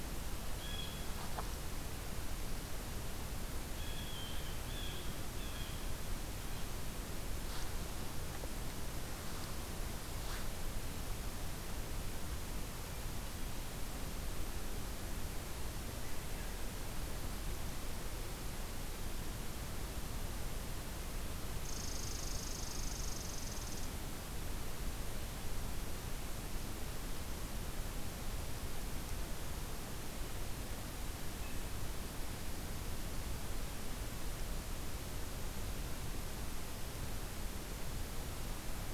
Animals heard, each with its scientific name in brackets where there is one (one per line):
Blue Jay (Cyanocitta cristata)
Red Squirrel (Tamiasciurus hudsonicus)